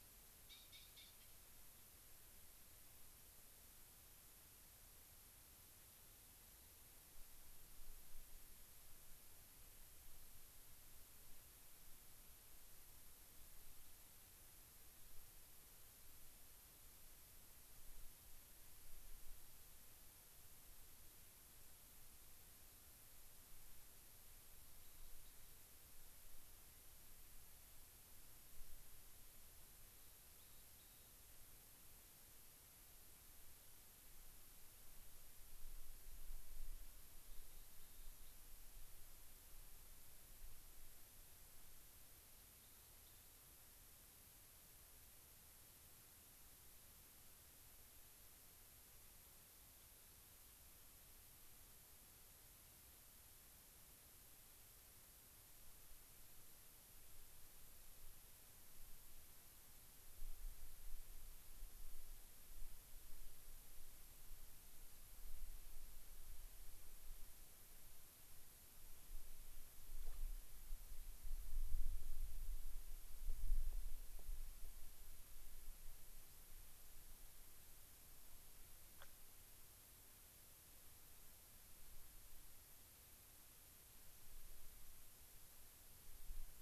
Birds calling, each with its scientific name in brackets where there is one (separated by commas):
Rock Wren (Salpinctes obsoletus), unidentified bird